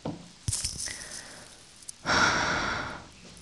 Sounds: Sigh